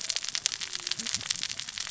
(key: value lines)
label: biophony, cascading saw
recorder: SoundTrap 600 or HydroMoth